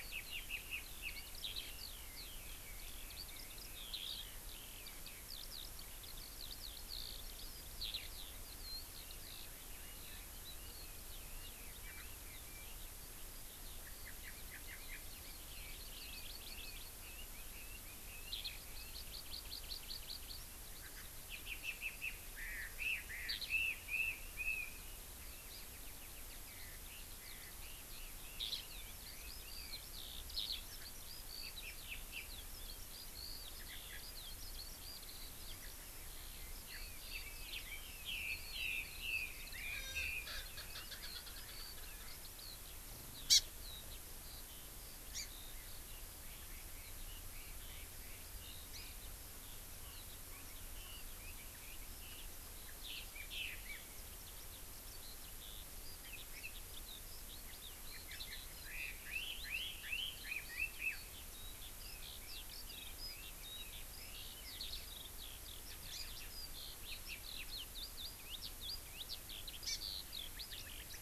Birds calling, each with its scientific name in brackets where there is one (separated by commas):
Red-billed Leiothrix (Leiothrix lutea), Hawaii Amakihi (Chlorodrepanis virens), Eurasian Skylark (Alauda arvensis), Erckel's Francolin (Pternistis erckelii)